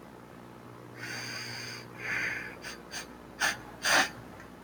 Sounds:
Sniff